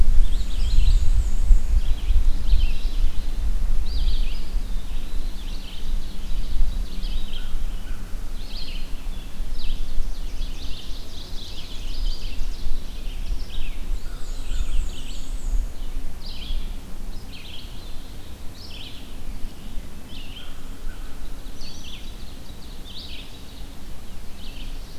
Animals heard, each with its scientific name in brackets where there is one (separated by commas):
Red-eyed Vireo (Vireo olivaceus), Eastern Wood-Pewee (Contopus virens), Black-and-white Warbler (Mniotilta varia), American Crow (Corvus brachyrhynchos), Mourning Warbler (Geothlypis philadelphia), Ovenbird (Seiurus aurocapilla)